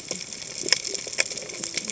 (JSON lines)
{"label": "biophony, cascading saw", "recorder": "HydroMoth"}